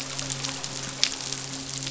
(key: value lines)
label: biophony, midshipman
recorder: SoundTrap 500